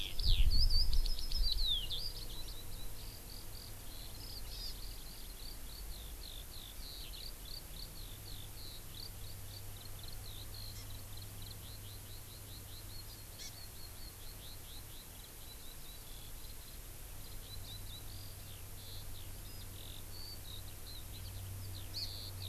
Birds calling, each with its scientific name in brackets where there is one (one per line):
Hawaii Amakihi (Chlorodrepanis virens)
Eurasian Skylark (Alauda arvensis)